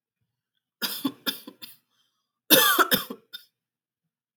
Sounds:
Cough